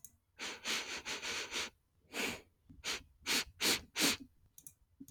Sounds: Sniff